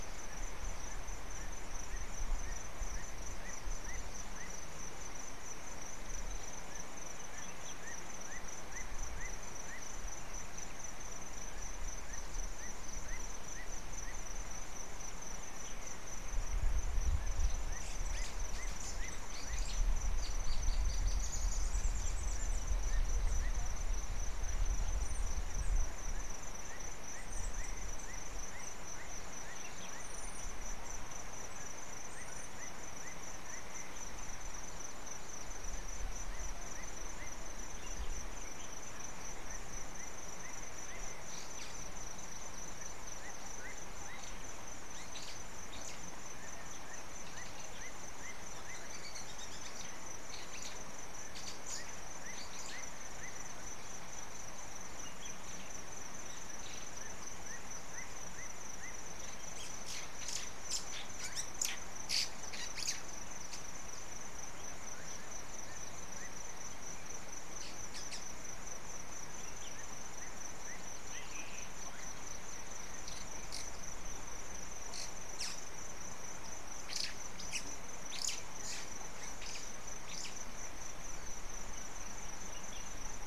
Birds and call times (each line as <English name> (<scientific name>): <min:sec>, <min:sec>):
White-browed Sparrow-Weaver (Plocepasser mahali): 0:19.7, 0:21.2, 0:45.2, 1:00.3, 1:02.2, 1:15.4, 1:19.5